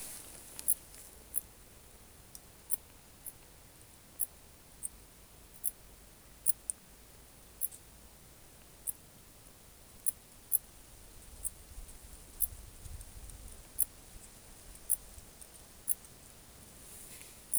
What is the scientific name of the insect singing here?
Pholidoptera griseoaptera